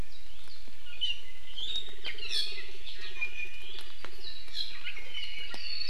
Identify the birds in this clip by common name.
Iiwi